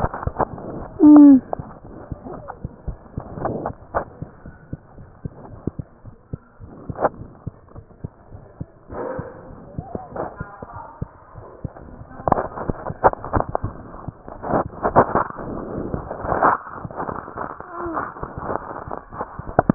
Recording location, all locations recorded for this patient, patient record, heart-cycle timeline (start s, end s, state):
mitral valve (MV)
pulmonary valve (PV)+tricuspid valve (TV)+mitral valve (MV)
#Age: Child
#Sex: Female
#Height: 88.0 cm
#Weight: 12.1 kg
#Pregnancy status: False
#Murmur: Unknown
#Murmur locations: nan
#Most audible location: nan
#Systolic murmur timing: nan
#Systolic murmur shape: nan
#Systolic murmur grading: nan
#Systolic murmur pitch: nan
#Systolic murmur quality: nan
#Diastolic murmur timing: nan
#Diastolic murmur shape: nan
#Diastolic murmur grading: nan
#Diastolic murmur pitch: nan
#Diastolic murmur quality: nan
#Outcome: Abnormal
#Campaign: 2015 screening campaign
0.00	4.42	unannotated
4.42	4.52	S1
4.52	4.70	systole
4.70	4.82	S2
4.82	4.98	diastole
4.98	5.08	S1
5.08	5.24	systole
5.24	5.34	S2
5.34	5.49	diastole
5.49	5.62	S1
5.62	5.75	systole
5.75	5.84	S2
5.84	6.04	diastole
6.04	6.14	S1
6.14	6.32	systole
6.32	6.42	S2
6.42	6.59	diastole
6.59	6.72	S1
6.72	6.88	systole
6.88	6.98	S2
6.98	7.16	diastole
7.16	7.30	S1
7.30	7.46	systole
7.46	7.56	S2
7.56	7.74	diastole
7.74	7.84	S1
7.84	8.00	systole
8.00	8.10	S2
8.10	8.31	diastole
8.31	8.44	S1
8.44	8.60	systole
8.60	8.70	S2
8.70	8.92	diastole
8.92	19.74	unannotated